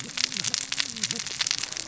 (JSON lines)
{"label": "biophony, cascading saw", "recorder": "SoundTrap 600 or HydroMoth"}